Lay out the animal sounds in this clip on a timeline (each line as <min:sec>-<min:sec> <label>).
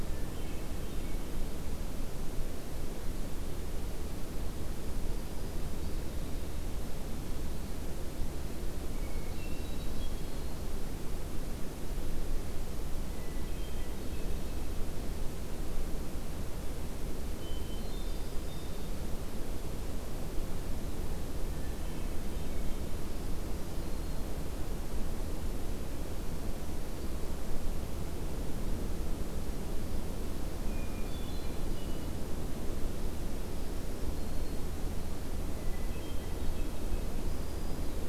0:00.0-0:01.3 Hermit Thrush (Catharus guttatus)
0:08.9-0:10.9 Hermit Thrush (Catharus guttatus)
0:13.1-0:14.7 Hermit Thrush (Catharus guttatus)
0:17.4-0:19.1 Hermit Thrush (Catharus guttatus)
0:21.4-0:22.8 Hermit Thrush (Catharus guttatus)
0:23.4-0:24.3 Black-throated Green Warbler (Setophaga virens)
0:30.6-0:32.1 Hermit Thrush (Catharus guttatus)
0:33.4-0:34.8 Black-throated Green Warbler (Setophaga virens)
0:35.5-0:37.2 Hermit Thrush (Catharus guttatus)
0:37.1-0:38.1 Black-throated Green Warbler (Setophaga virens)